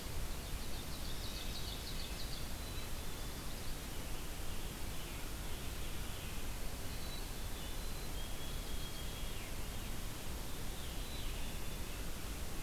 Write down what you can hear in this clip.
Ovenbird, Red-breasted Nuthatch, White-throated Sparrow, Black-capped Chickadee